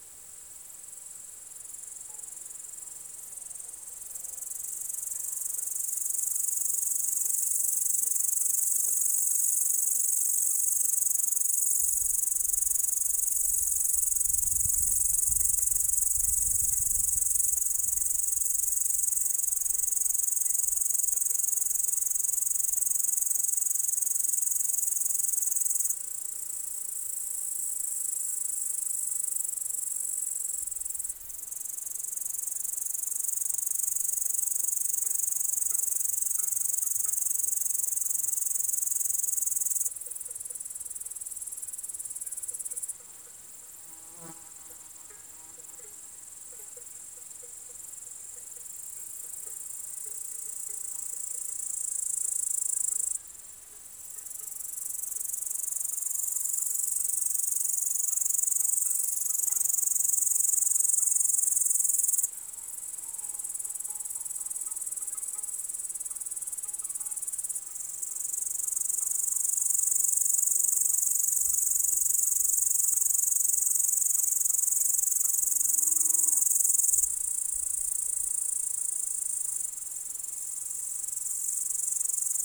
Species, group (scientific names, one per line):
Tettigonia cantans
Orthoptera